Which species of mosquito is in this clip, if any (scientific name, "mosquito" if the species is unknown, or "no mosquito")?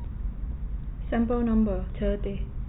no mosquito